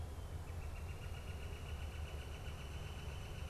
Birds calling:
Northern Flicker (Colaptes auratus)

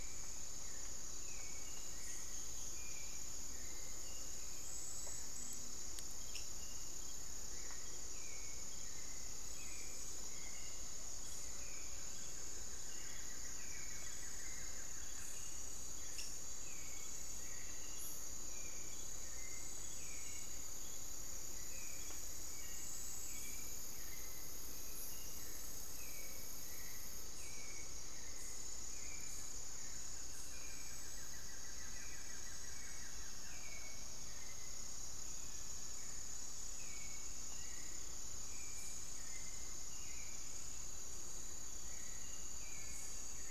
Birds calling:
Buff-throated Woodcreeper (Xiphorhynchus guttatus), Long-winged Antwren (Myrmotherula longipennis), Hauxwell's Thrush (Turdus hauxwelli), unidentified bird

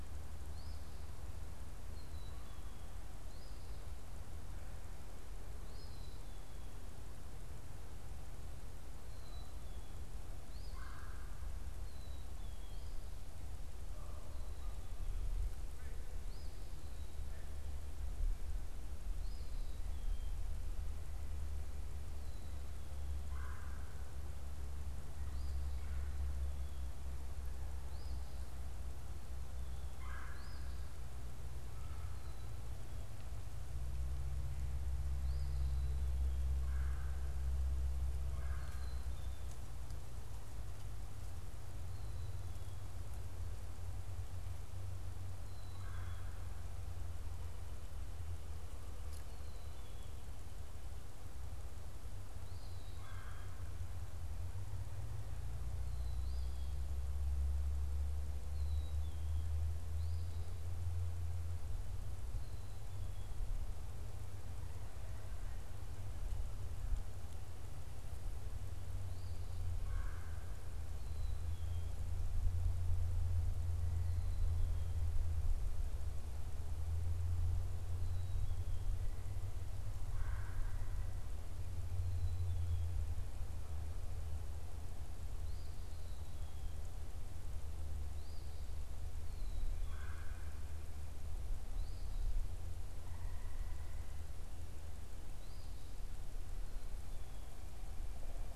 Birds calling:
Black-capped Chickadee (Poecile atricapillus), Red-bellied Woodpecker (Melanerpes carolinus), Eastern Phoebe (Sayornis phoebe)

